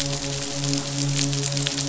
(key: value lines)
label: biophony, midshipman
recorder: SoundTrap 500